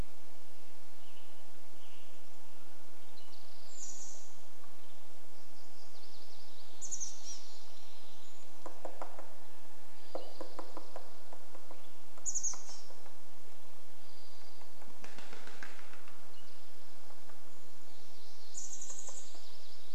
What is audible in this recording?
Western Tanager song, Mountain Quail call, Townsend's Solitaire call, Spotted Towhee song, Chestnut-backed Chickadee call, Western Tanager call, MacGillivray's Warbler song, Brown Creeper call, woodpecker drumming, Dark-eyed Junco song, unidentified sound